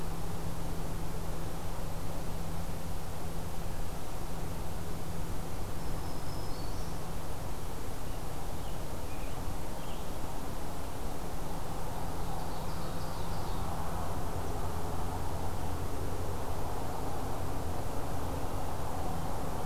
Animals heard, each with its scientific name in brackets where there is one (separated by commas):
Scarlet Tanager (Piranga olivacea), Ovenbird (Seiurus aurocapilla), Black-throated Green Warbler (Setophaga virens)